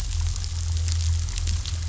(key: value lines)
label: anthrophony, boat engine
recorder: SoundTrap 500